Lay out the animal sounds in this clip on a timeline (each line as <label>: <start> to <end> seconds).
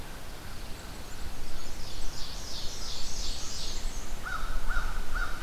American Crow (Corvus brachyrhynchos): 0.0 to 2.3 seconds
Pine Warbler (Setophaga pinus): 0.2 to 1.5 seconds
Black-and-white Warbler (Mniotilta varia): 0.6 to 4.0 seconds
Ovenbird (Seiurus aurocapilla): 0.9 to 4.0 seconds
American Crow (Corvus brachyrhynchos): 4.2 to 5.4 seconds